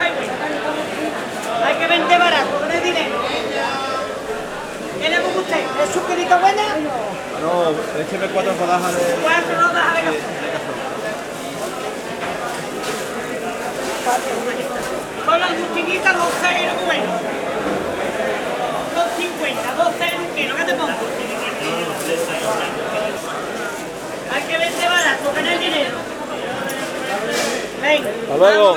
Is there a dog barking ?
no